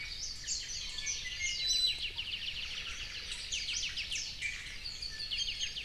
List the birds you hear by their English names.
Warbling White-eye, Iiwi, Apapane, Omao